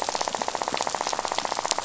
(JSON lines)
{"label": "biophony, rattle", "recorder": "SoundTrap 500"}